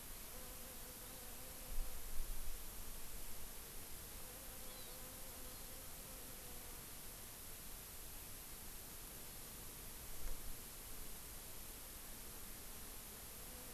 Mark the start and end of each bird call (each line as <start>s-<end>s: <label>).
4.6s-5.0s: Hawaii Amakihi (Chlorodrepanis virens)
5.4s-5.7s: Hawaii Amakihi (Chlorodrepanis virens)